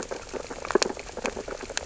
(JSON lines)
{"label": "biophony, sea urchins (Echinidae)", "recorder": "SoundTrap 600 or HydroMoth"}